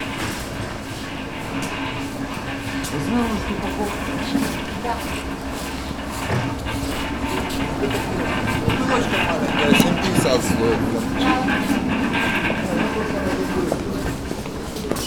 can anyone be heard running?
no